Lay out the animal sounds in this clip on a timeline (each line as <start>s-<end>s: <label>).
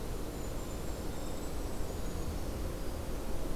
0.0s-3.6s: Winter Wren (Troglodytes hiemalis)
0.1s-2.3s: Golden-crowned Kinglet (Regulus satrapa)